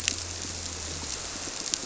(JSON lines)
{"label": "biophony", "recorder": "SoundTrap 300"}